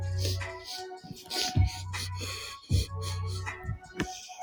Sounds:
Sniff